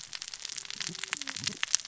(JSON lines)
{"label": "biophony, cascading saw", "recorder": "SoundTrap 600 or HydroMoth"}